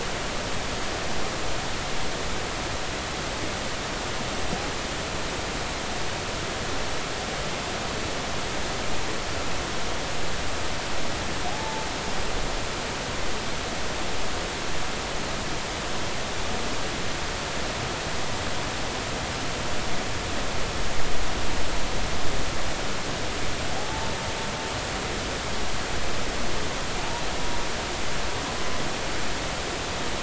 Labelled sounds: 11.5	11.9	humpback whale, 0.80 to 0.93 kHz
23.8	24.1	humpback whale, 0.80 to 0.93 kHz

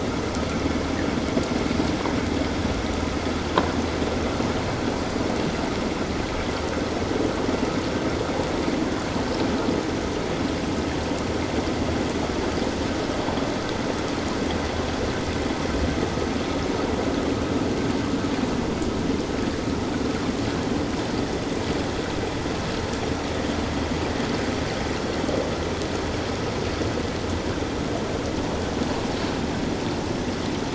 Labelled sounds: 5.0	5.3	Pacific white-sided dolphin, 4.7 to 4.9 kHz

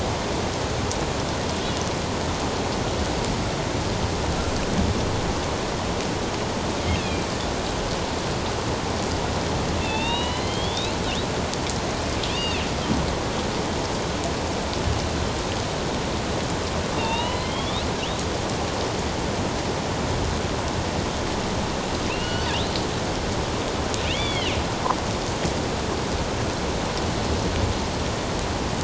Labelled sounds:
6.9	7.3	killer whale, northern resident, A clan, AB subclan, 2.3 to 2.9 kHz
9.8	11.0	killer whale, northern resident, A clan, AB subclan, 0.84 to 4.2 kHz
12.3	12.6	killer whale, northern resident, A clan, AB subclan, 2.4 to 3.8 kHz
17.0	17.8	killer whale, northern resident, A clan, AB subclan, 0.84 to 4.0 kHz
22.1	22.5	killer whale, northern resident, A clan, AB subclan, 2.5 to 4.5 kHz
24.1	24.6	killer whale, northern resident, A clan, AB subclan, 1.9 to 3.6 kHz

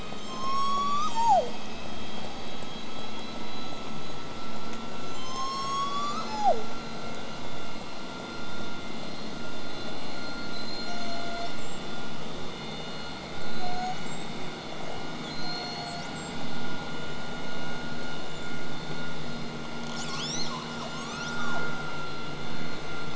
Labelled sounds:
0.2	1.6	killer whale, southern resident, call S01, 0.31 to 8.0 kHz
5.0	6.7	killer whale, southern resident, call S01, 0.35 to 8.0 kHz
9.7	10.4	killer whale, southern resident, 3.7 to 8.0 kHz
10.5	12.0	killer whale, southern resident, call S42, 0.58 to 8.0 kHz
13.4	14.4	killer whale, southern resident, call S42, 0.51 to 8.0 kHz
15.2	16.4	killer whale, southern resident, call S42, 0.55 to 8.0 kHz
19.9	20.9	killer whale, southern resident, J pod, call S02ii, 0.68 to 8.0 kHz

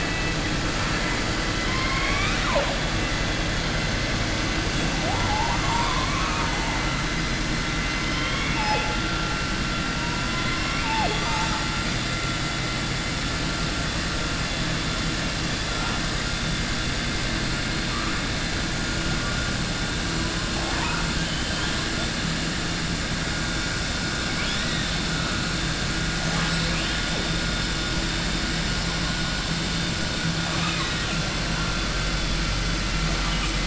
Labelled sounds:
20.5	21.8	killer whale, southern resident, 0.62 to 4.0 kHz
30.4	31.2	killer whale, southern resident, 0.67 to 3.9 kHz

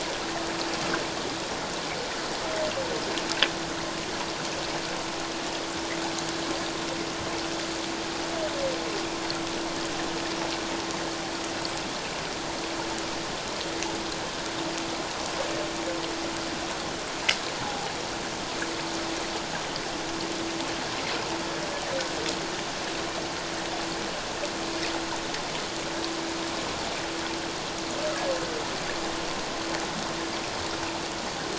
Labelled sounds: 17.6	17.9	humpback whale, 0.78 to 0.94 kHz

